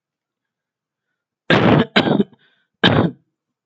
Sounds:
Cough